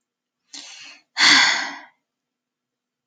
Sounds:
Sigh